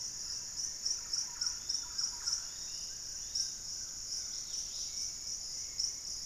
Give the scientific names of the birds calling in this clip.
Campylorhynchus turdinus, Turdus hauxwelli, Piprites chloris, Tolmomyias assimilis, Trogon collaris, Pachysylvia hypoxantha